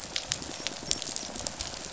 {"label": "biophony, rattle response", "recorder": "SoundTrap 500"}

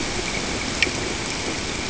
{"label": "ambient", "recorder": "HydroMoth"}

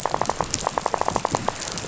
{"label": "biophony, rattle", "recorder": "SoundTrap 500"}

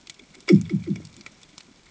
{"label": "anthrophony, bomb", "recorder": "HydroMoth"}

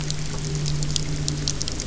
{"label": "anthrophony, boat engine", "recorder": "SoundTrap 300"}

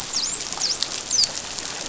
{"label": "biophony, dolphin", "recorder": "SoundTrap 500"}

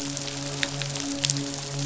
{"label": "biophony, midshipman", "recorder": "SoundTrap 500"}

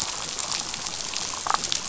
{"label": "biophony, damselfish", "recorder": "SoundTrap 500"}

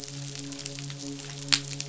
{"label": "biophony, midshipman", "recorder": "SoundTrap 500"}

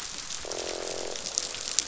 {"label": "biophony, croak", "recorder": "SoundTrap 500"}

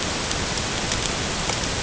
{"label": "ambient", "recorder": "HydroMoth"}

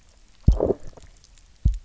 {"label": "biophony, low growl", "recorder": "SoundTrap 300"}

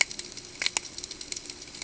{"label": "ambient", "recorder": "HydroMoth"}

